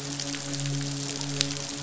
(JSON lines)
{"label": "biophony, midshipman", "recorder": "SoundTrap 500"}